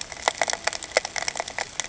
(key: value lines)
label: ambient
recorder: HydroMoth